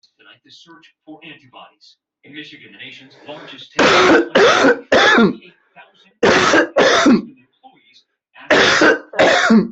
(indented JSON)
{
  "expert_labels": [
    {
      "quality": "ok",
      "cough_type": "dry",
      "dyspnea": true,
      "wheezing": true,
      "stridor": false,
      "choking": false,
      "congestion": false,
      "nothing": false,
      "diagnosis": "obstructive lung disease",
      "severity": "mild"
    }
  ],
  "age": 51,
  "gender": "male",
  "respiratory_condition": false,
  "fever_muscle_pain": false,
  "status": "symptomatic"
}